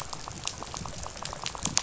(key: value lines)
label: biophony, rattle
recorder: SoundTrap 500